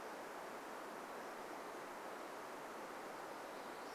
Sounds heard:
forest ambience